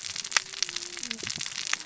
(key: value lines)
label: biophony, cascading saw
recorder: SoundTrap 600 or HydroMoth